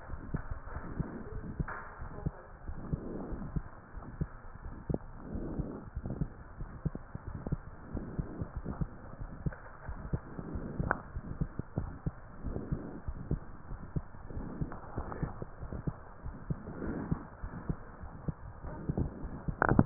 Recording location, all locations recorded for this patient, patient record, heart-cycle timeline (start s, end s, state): aortic valve (AV)
aortic valve (AV)+pulmonary valve (PV)+tricuspid valve (TV)+mitral valve (MV)
#Age: Child
#Sex: Male
#Height: 125.0 cm
#Weight: 36.1 kg
#Pregnancy status: False
#Murmur: Present
#Murmur locations: pulmonary valve (PV)+tricuspid valve (TV)
#Most audible location: pulmonary valve (PV)
#Systolic murmur timing: Early-systolic
#Systolic murmur shape: Plateau
#Systolic murmur grading: I/VI
#Systolic murmur pitch: Low
#Systolic murmur quality: Blowing
#Diastolic murmur timing: nan
#Diastolic murmur shape: nan
#Diastolic murmur grading: nan
#Diastolic murmur pitch: nan
#Diastolic murmur quality: nan
#Outcome: Abnormal
#Campaign: 2015 screening campaign
0.00	11.99	unannotated
11.99	12.06	systole
12.06	12.14	S2
12.14	12.44	diastole
12.44	12.58	S1
12.58	12.70	systole
12.70	12.82	S2
12.82	13.05	diastole
13.05	13.17	S1
13.17	13.30	systole
13.30	13.42	S2
13.42	13.69	diastole
13.69	13.80	S1
13.80	13.94	systole
13.94	14.04	S2
14.04	14.31	diastole
14.31	14.46	S1
14.46	14.58	systole
14.58	14.69	S2
14.69	14.93	diastole
14.93	15.06	S1
15.06	15.19	systole
15.19	15.32	S2
15.32	15.59	diastole
15.59	15.73	S1
15.73	15.86	systole
15.86	15.98	S2
15.98	16.22	diastole
16.22	16.36	S1
16.36	16.48	systole
16.48	16.58	S2
16.58	16.80	diastole
16.80	16.92	S1
16.92	17.08	systole
17.08	17.21	S2
17.21	17.43	diastole
17.43	17.51	S1
17.51	17.67	systole
17.67	17.76	S2
17.76	18.00	diastole
18.00	18.11	S1
18.11	18.24	systole
18.24	18.34	S2
18.34	18.62	diastole
18.62	19.86	unannotated